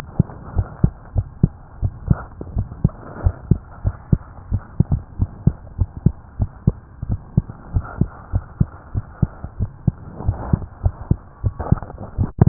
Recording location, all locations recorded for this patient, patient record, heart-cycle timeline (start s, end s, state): tricuspid valve (TV)
aortic valve (AV)+pulmonary valve (PV)+tricuspid valve (TV)+mitral valve (MV)
#Age: Child
#Sex: Male
#Height: 95.0 cm
#Weight: 14.4 kg
#Pregnancy status: False
#Murmur: Absent
#Murmur locations: nan
#Most audible location: nan
#Systolic murmur timing: nan
#Systolic murmur shape: nan
#Systolic murmur grading: nan
#Systolic murmur pitch: nan
#Systolic murmur quality: nan
#Diastolic murmur timing: nan
#Diastolic murmur shape: nan
#Diastolic murmur grading: nan
#Diastolic murmur pitch: nan
#Diastolic murmur quality: nan
#Outcome: Normal
#Campaign: 2015 screening campaign
0.00	0.53	unannotated
0.53	0.68	S1
0.68	0.80	systole
0.80	0.94	S2
0.94	1.14	diastole
1.14	1.28	S1
1.28	1.40	systole
1.40	1.54	S2
1.54	1.80	diastole
1.80	1.94	S1
1.94	2.06	systole
2.06	2.22	S2
2.22	2.50	diastole
2.50	2.68	S1
2.68	2.80	systole
2.80	2.94	S2
2.94	3.18	diastole
3.18	3.34	S1
3.34	3.48	systole
3.48	3.62	S2
3.62	3.82	diastole
3.82	3.98	S1
3.98	4.08	systole
4.08	4.22	S2
4.22	4.48	diastole
4.48	4.62	S1
4.62	4.76	systole
4.76	4.90	S2
4.90	5.18	diastole
5.18	5.30	S1
5.30	5.40	systole
5.40	5.54	S2
5.54	5.76	diastole
5.76	5.90	S1
5.90	6.02	systole
6.02	6.16	S2
6.16	6.38	diastole
6.38	6.50	S1
6.50	6.64	systole
6.64	6.78	S2
6.78	7.07	diastole
7.07	7.20	S1
7.20	7.34	systole
7.34	7.48	S2
7.48	7.71	diastole
7.71	7.88	S1
7.88	7.97	systole
7.97	8.10	S2
8.10	8.29	diastole
8.29	8.44	S1
8.44	8.56	systole
8.56	8.68	S2
8.68	8.94	diastole
8.94	9.04	S1
9.04	9.18	systole
9.18	9.32	S2
9.32	9.58	diastole
9.58	9.70	S1
9.70	12.48	unannotated